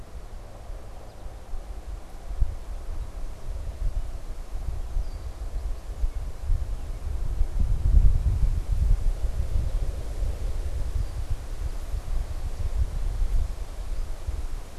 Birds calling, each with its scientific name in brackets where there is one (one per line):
Red-winged Blackbird (Agelaius phoeniceus)
American Goldfinch (Spinus tristis)